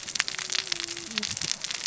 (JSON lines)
{"label": "biophony, cascading saw", "recorder": "SoundTrap 600 or HydroMoth"}